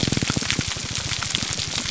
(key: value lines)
label: biophony, grouper groan
recorder: SoundTrap 300